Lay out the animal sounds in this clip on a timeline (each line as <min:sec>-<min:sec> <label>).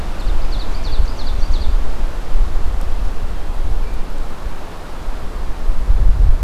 0:00.0-0:01.8 Ovenbird (Seiurus aurocapilla)